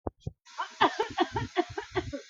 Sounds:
Cough